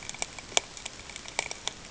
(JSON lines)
{"label": "ambient", "recorder": "HydroMoth"}